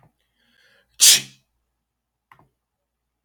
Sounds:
Sneeze